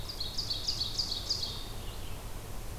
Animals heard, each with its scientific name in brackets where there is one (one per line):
Red-eyed Vireo (Vireo olivaceus)
Ovenbird (Seiurus aurocapilla)